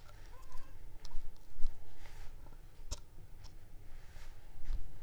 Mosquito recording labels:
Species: Anopheles arabiensis; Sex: female; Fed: unfed; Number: one; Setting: cup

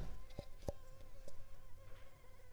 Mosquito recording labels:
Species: Culex pipiens complex; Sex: female; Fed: unfed; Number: one; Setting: cup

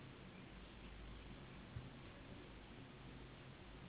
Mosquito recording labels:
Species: Anopheles gambiae s.s.; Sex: female; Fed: unfed; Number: one; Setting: insect culture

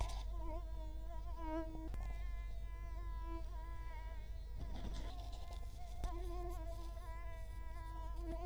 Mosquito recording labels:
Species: Culex quinquefasciatus; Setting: cup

